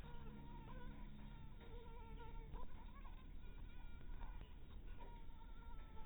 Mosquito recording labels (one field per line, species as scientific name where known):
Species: Anopheles harrisoni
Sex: female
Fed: unfed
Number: one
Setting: cup